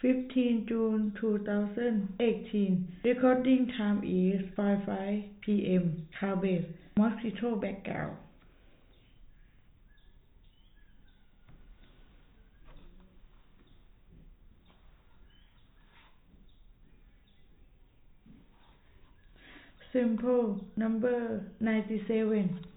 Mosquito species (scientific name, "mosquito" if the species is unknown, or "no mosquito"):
no mosquito